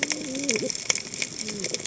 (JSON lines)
{"label": "biophony, cascading saw", "recorder": "HydroMoth"}